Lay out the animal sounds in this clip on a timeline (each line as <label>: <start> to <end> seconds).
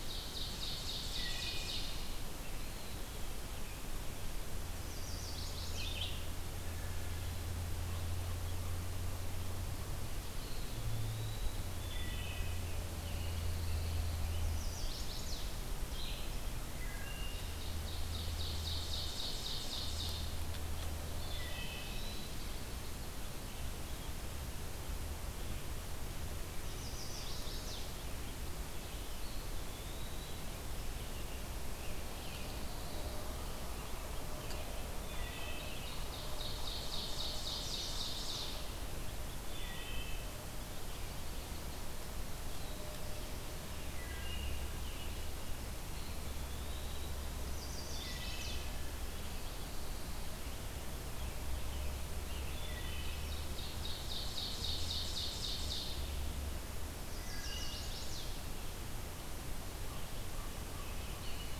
Ovenbird (Seiurus aurocapilla): 0.0 to 2.0 seconds
Red-eyed Vireo (Vireo olivaceus): 0.0 to 16.4 seconds
Wood Thrush (Hylocichla mustelina): 1.1 to 1.9 seconds
Eastern Wood-Pewee (Contopus virens): 2.4 to 3.6 seconds
Chestnut-sided Warbler (Setophaga pensylvanica): 4.6 to 6.2 seconds
Eastern Wood-Pewee (Contopus virens): 10.3 to 11.9 seconds
Wood Thrush (Hylocichla mustelina): 11.6 to 12.9 seconds
Pine Warbler (Setophaga pinus): 12.8 to 14.3 seconds
Chestnut-sided Warbler (Setophaga pensylvanica): 14.2 to 15.6 seconds
Wood Thrush (Hylocichla mustelina): 16.6 to 17.7 seconds
Ovenbird (Seiurus aurocapilla): 17.2 to 20.5 seconds
Eastern Wood-Pewee (Contopus virens): 20.9 to 22.5 seconds
Wood Thrush (Hylocichla mustelina): 21.2 to 21.9 seconds
Chestnut-sided Warbler (Setophaga pensylvanica): 26.5 to 27.9 seconds
Eastern Wood-Pewee (Contopus virens): 28.7 to 30.8 seconds
Wood Thrush (Hylocichla mustelina): 34.9 to 36.2 seconds
Ovenbird (Seiurus aurocapilla): 35.7 to 38.8 seconds
Wood Thrush (Hylocichla mustelina): 39.3 to 40.4 seconds
Wood Thrush (Hylocichla mustelina): 43.8 to 44.6 seconds
Eastern Wood-Pewee (Contopus virens): 45.8 to 47.3 seconds
Chestnut-sided Warbler (Setophaga pensylvanica): 47.4 to 48.8 seconds
Wood Thrush (Hylocichla mustelina): 47.9 to 48.6 seconds
Pine Warbler (Setophaga pinus): 49.2 to 50.4 seconds
Wood Thrush (Hylocichla mustelina): 52.2 to 53.6 seconds
Ovenbird (Seiurus aurocapilla): 53.1 to 56.1 seconds
Chestnut-sided Warbler (Setophaga pensylvanica): 57.0 to 58.5 seconds
Wood Thrush (Hylocichla mustelina): 57.1 to 57.8 seconds
Common Raven (Corvus corax): 59.8 to 61.6 seconds